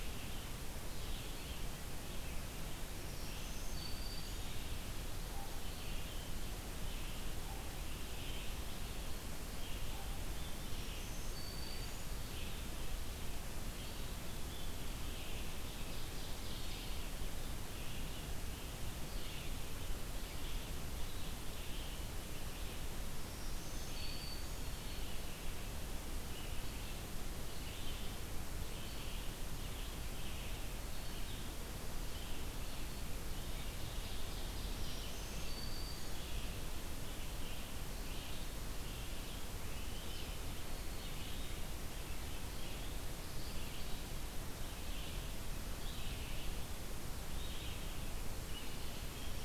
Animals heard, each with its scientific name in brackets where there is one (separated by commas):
Black-throated Green Warbler (Setophaga virens), Ovenbird (Seiurus aurocapilla), Black-capped Chickadee (Poecile atricapillus), Red-eyed Vireo (Vireo olivaceus)